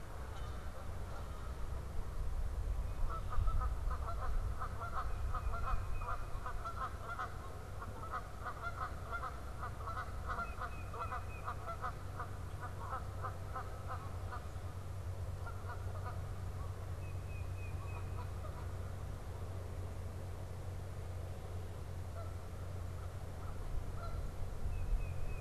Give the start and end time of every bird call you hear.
[0.00, 25.41] Canada Goose (Branta canadensis)
[4.76, 6.46] Tufted Titmouse (Baeolophus bicolor)
[10.26, 11.46] Tufted Titmouse (Baeolophus bicolor)
[16.86, 18.46] Tufted Titmouse (Baeolophus bicolor)
[22.56, 23.76] American Crow (Corvus brachyrhynchos)
[24.56, 25.41] Tufted Titmouse (Baeolophus bicolor)

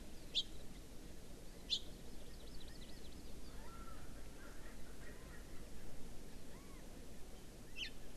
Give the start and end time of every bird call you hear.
[0.29, 0.49] House Finch (Haemorhous mexicanus)
[1.69, 1.79] House Finch (Haemorhous mexicanus)
[1.99, 3.49] Hawaii Amakihi (Chlorodrepanis virens)
[3.49, 5.59] Erckel's Francolin (Pternistis erckelii)
[6.49, 6.89] Chinese Hwamei (Garrulax canorus)
[7.79, 7.89] House Finch (Haemorhous mexicanus)

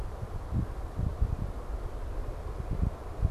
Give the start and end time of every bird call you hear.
[2.06, 3.31] Northern Cardinal (Cardinalis cardinalis)

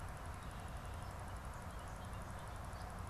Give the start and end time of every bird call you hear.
[1.10, 3.10] Bobolink (Dolichonyx oryzivorus)

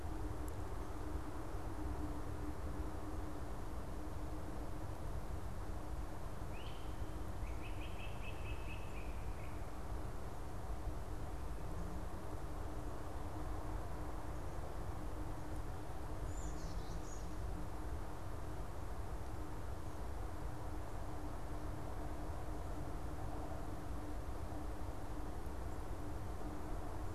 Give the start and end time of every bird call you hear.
[6.21, 9.71] Great Crested Flycatcher (Myiarchus crinitus)
[16.21, 17.61] Black-capped Chickadee (Poecile atricapillus)

